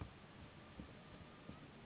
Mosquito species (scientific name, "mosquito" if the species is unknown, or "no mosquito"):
Anopheles gambiae s.s.